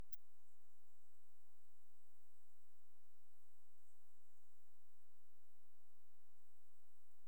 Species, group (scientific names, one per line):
Helicocercus triguttatus
Orthoptera